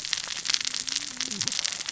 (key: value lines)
label: biophony, cascading saw
recorder: SoundTrap 600 or HydroMoth